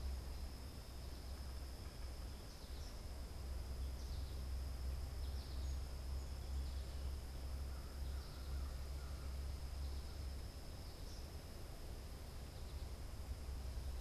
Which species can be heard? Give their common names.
American Goldfinch, American Crow